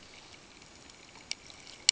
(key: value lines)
label: ambient
recorder: HydroMoth